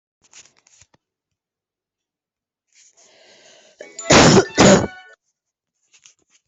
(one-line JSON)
{"expert_labels": [{"quality": "ok", "cough_type": "dry", "dyspnea": false, "wheezing": false, "stridor": false, "choking": false, "congestion": false, "nothing": true, "diagnosis": "lower respiratory tract infection", "severity": "unknown"}], "age": 26, "gender": "female", "respiratory_condition": false, "fever_muscle_pain": true, "status": "symptomatic"}